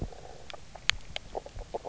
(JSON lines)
{"label": "biophony, grazing", "recorder": "SoundTrap 300"}